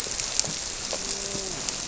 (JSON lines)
{"label": "biophony, grouper", "recorder": "SoundTrap 300"}